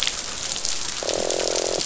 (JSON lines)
{"label": "biophony, croak", "recorder": "SoundTrap 500"}